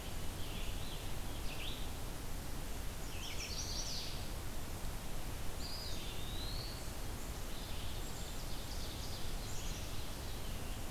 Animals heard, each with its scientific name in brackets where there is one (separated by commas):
Ovenbird (Seiurus aurocapilla), Chestnut-sided Warbler (Setophaga pensylvanica), Red-eyed Vireo (Vireo olivaceus), Black-capped Chickadee (Poecile atricapillus), Eastern Wood-Pewee (Contopus virens)